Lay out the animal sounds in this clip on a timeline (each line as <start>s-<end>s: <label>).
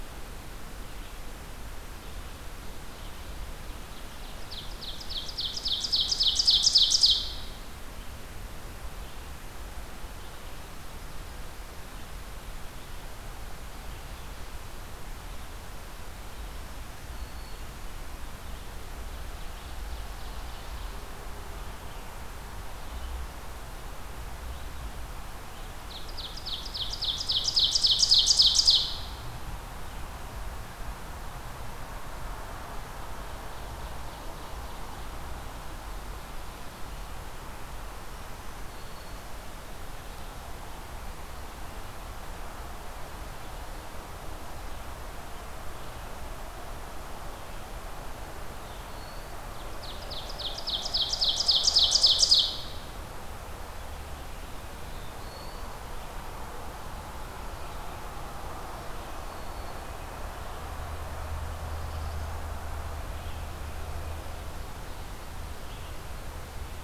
0.0s-4.0s: Red-eyed Vireo (Vireo olivaceus)
4.3s-7.4s: Ovenbird (Seiurus aurocapilla)
16.4s-17.9s: Black-throated Green Warbler (Setophaga virens)
18.9s-21.1s: Ovenbird (Seiurus aurocapilla)
25.5s-29.2s: Ovenbird (Seiurus aurocapilla)
33.3s-35.3s: Ovenbird (Seiurus aurocapilla)
38.1s-39.4s: Black-throated Green Warbler (Setophaga virens)
48.5s-49.4s: Black-throated Blue Warbler (Setophaga caerulescens)
49.6s-52.7s: Ovenbird (Seiurus aurocapilla)
54.6s-55.8s: Black-throated Blue Warbler (Setophaga caerulescens)
58.7s-60.1s: Black-throated Green Warbler (Setophaga virens)
61.3s-62.5s: Black-throated Blue Warbler (Setophaga caerulescens)